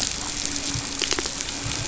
{"label": "biophony", "recorder": "SoundTrap 500"}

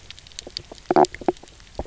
{"label": "biophony, knock croak", "recorder": "SoundTrap 300"}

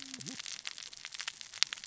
{"label": "biophony, cascading saw", "recorder": "SoundTrap 600 or HydroMoth"}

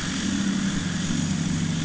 {"label": "anthrophony, boat engine", "recorder": "HydroMoth"}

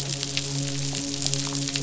{"label": "biophony, midshipman", "recorder": "SoundTrap 500"}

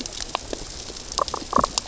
{"label": "biophony, damselfish", "recorder": "SoundTrap 600 or HydroMoth"}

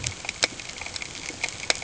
{"label": "ambient", "recorder": "HydroMoth"}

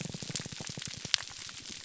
{"label": "biophony, pulse", "recorder": "SoundTrap 300"}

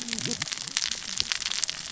{"label": "biophony, cascading saw", "recorder": "SoundTrap 600 or HydroMoth"}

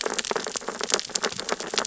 {"label": "biophony, sea urchins (Echinidae)", "recorder": "SoundTrap 600 or HydroMoth"}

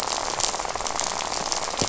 {"label": "biophony, rattle", "recorder": "SoundTrap 500"}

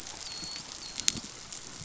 {"label": "biophony, dolphin", "recorder": "SoundTrap 500"}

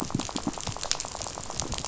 {"label": "biophony, rattle", "recorder": "SoundTrap 500"}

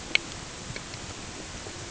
{"label": "ambient", "recorder": "HydroMoth"}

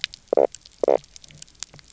{"label": "biophony, knock croak", "recorder": "SoundTrap 300"}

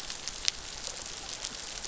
{"label": "biophony", "recorder": "SoundTrap 500"}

